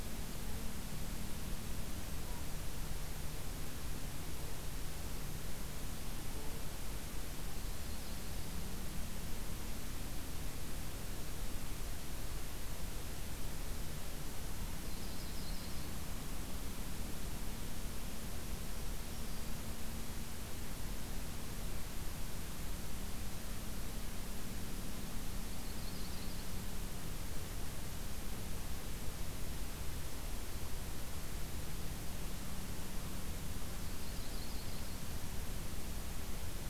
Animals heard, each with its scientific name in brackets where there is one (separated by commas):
Black-throated Green Warbler (Setophaga virens), Yellow-rumped Warbler (Setophaga coronata)